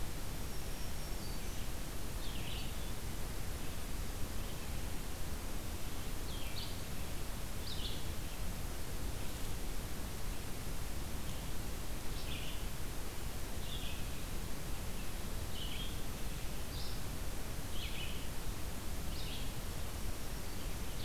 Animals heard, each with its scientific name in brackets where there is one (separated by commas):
Black-throated Green Warbler (Setophaga virens), Red-eyed Vireo (Vireo olivaceus)